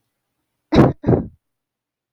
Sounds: Cough